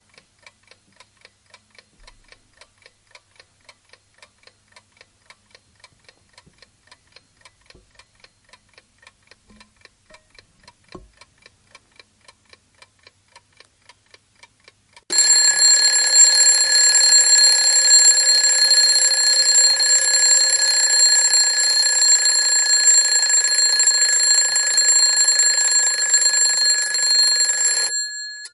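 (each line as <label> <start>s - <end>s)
A clock is ticking. 0.0s - 15.1s
An alarm is ringing. 15.1s - 28.5s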